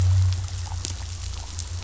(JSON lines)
{"label": "anthrophony, boat engine", "recorder": "SoundTrap 500"}